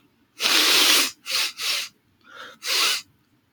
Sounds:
Sniff